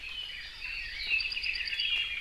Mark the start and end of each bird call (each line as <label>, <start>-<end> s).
Red-billed Leiothrix (Leiothrix lutea), 0.0-2.2 s
Apapane (Himatione sanguinea), 1.0-2.0 s